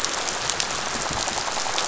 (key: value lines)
label: biophony, rattle
recorder: SoundTrap 500